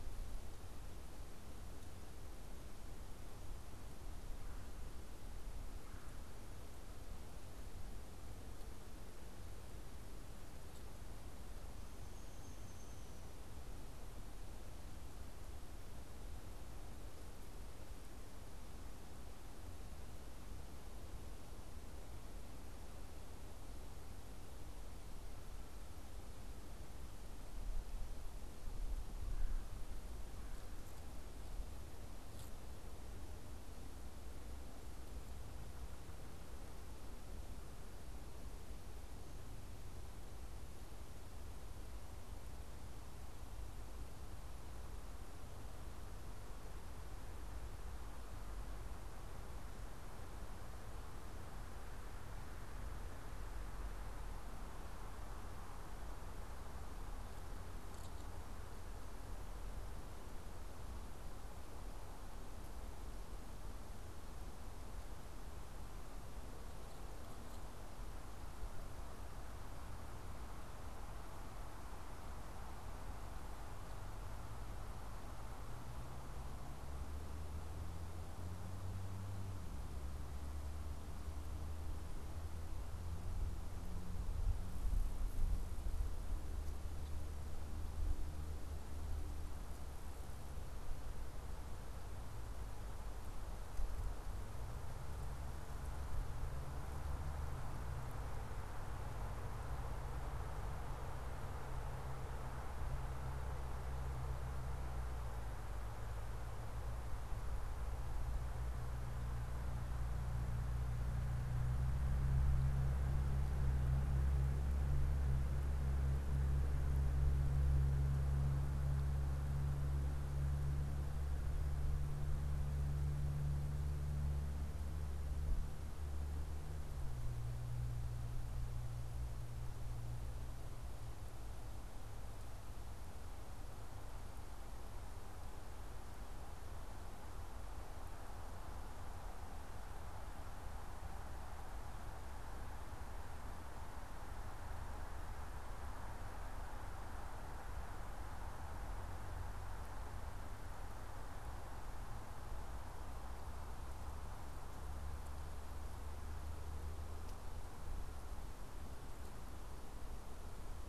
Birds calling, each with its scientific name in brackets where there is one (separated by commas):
Downy Woodpecker (Dryobates pubescens), Red-bellied Woodpecker (Melanerpes carolinus)